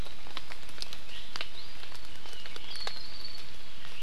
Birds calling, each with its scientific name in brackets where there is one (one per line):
Apapane (Himatione sanguinea)